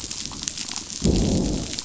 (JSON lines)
{"label": "biophony, growl", "recorder": "SoundTrap 500"}